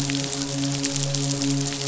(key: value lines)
label: biophony, midshipman
recorder: SoundTrap 500